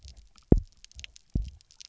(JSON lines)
{"label": "biophony, double pulse", "recorder": "SoundTrap 300"}